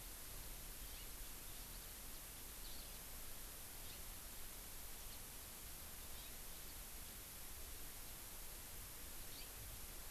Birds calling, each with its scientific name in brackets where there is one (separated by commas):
Eurasian Skylark (Alauda arvensis), House Finch (Haemorhous mexicanus), Hawaii Amakihi (Chlorodrepanis virens)